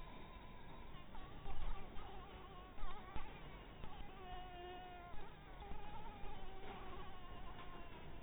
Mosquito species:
Anopheles barbirostris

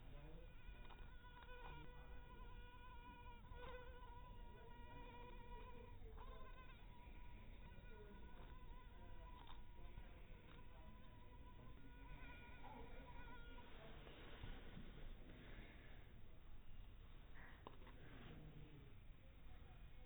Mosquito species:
mosquito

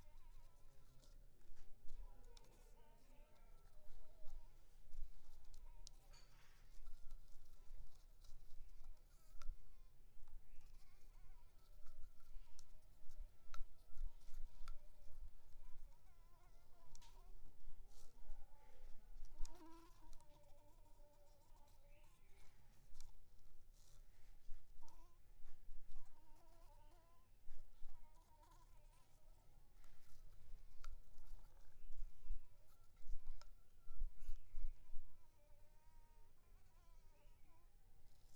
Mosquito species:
Anopheles maculipalpis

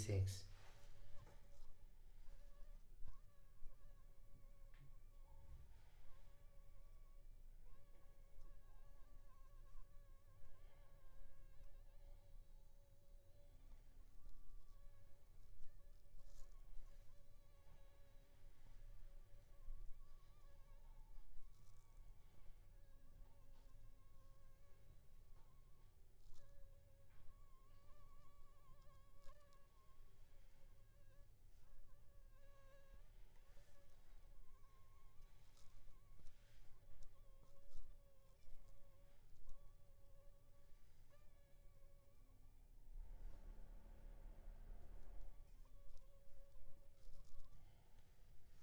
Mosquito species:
Anopheles funestus s.s.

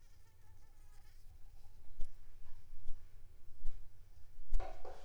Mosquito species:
Anopheles squamosus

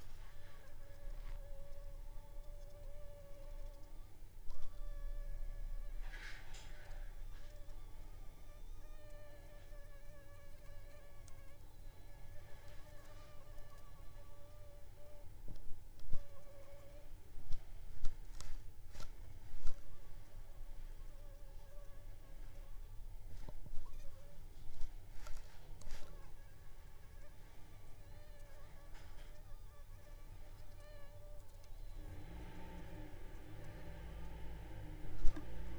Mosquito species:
Anopheles funestus s.s.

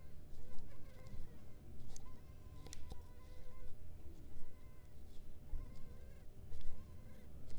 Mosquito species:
mosquito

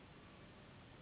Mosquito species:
Anopheles gambiae s.s.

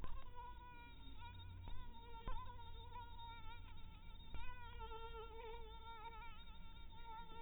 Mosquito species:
mosquito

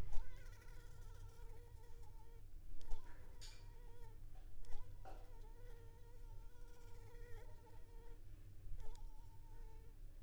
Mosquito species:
Anopheles arabiensis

